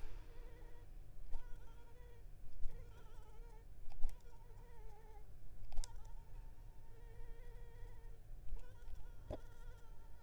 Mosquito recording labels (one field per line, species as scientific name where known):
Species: Anopheles arabiensis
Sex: female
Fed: unfed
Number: one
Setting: cup